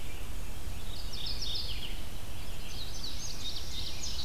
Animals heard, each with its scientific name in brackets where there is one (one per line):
Indigo Bunting (Passerina cyanea)
Red-eyed Vireo (Vireo olivaceus)
Mourning Warbler (Geothlypis philadelphia)